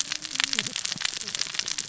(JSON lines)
{"label": "biophony, cascading saw", "recorder": "SoundTrap 600 or HydroMoth"}